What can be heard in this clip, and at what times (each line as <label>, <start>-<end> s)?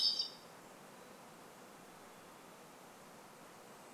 Hermit Thrush song, 0-4 s